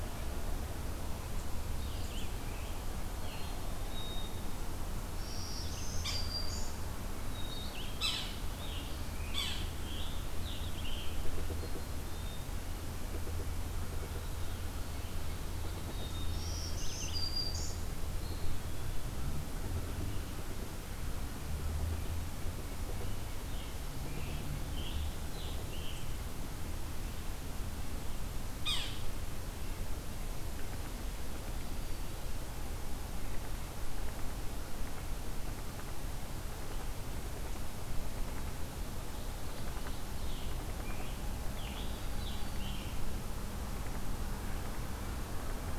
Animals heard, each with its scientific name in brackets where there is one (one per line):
Yellow-bellied Sapsucker (Sphyrapicus varius)
Black-capped Chickadee (Poecile atricapillus)
Black-throated Green Warbler (Setophaga virens)
Scarlet Tanager (Piranga olivacea)
Eastern Wood-Pewee (Contopus virens)